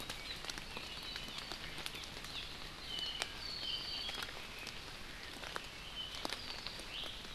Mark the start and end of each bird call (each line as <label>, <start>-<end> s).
Hawaii Amakihi (Chlorodrepanis virens), 1.9-2.4 s
Apapane (Himatione sanguinea), 2.8-4.4 s
Iiwi (Drepanis coccinea), 6.9-7.1 s